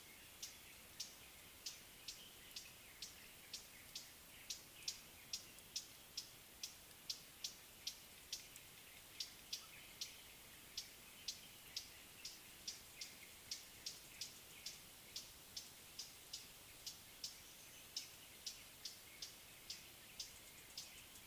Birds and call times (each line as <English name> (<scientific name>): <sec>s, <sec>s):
Northern Double-collared Sunbird (Cinnyris reichenowi): 13.9s